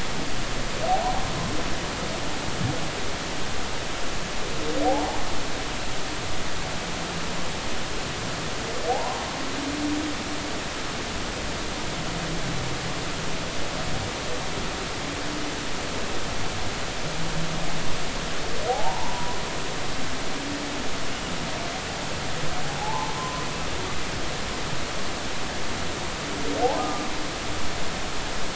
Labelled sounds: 0.9	1.2	humpback whale, 0.80 to 0.93 kHz
8.9	9.3	humpback whale, 0.80 to 1.1 kHz
18.7	19.4	humpback whale, 0.80 to 1.1 kHz
22.8	23.4	humpback whale, 0.80 to 1.1 kHz
26.8	27.1	humpback whale, 1.2 to 1.3 kHz

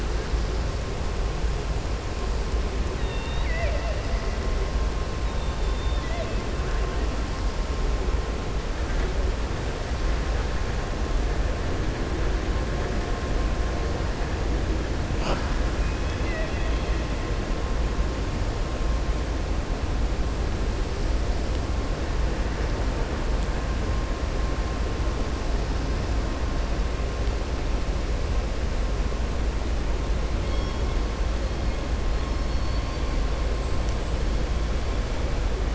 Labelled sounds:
2.9	4.0	killer whale, southern resident, 0.57 to 4.6 kHz
15.9	17.0	killer whale, southern resident, 0.64 to 4.3 kHz
32.1	33.1	killer whale, southern resident, 3.4 to 5.4 kHz

